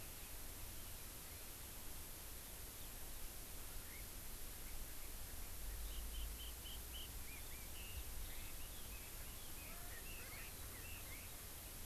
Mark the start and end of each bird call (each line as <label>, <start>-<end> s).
Chinese Hwamei (Garrulax canorus), 3.7-11.5 s
Erckel's Francolin (Pternistis erckelii), 9.7-11.8 s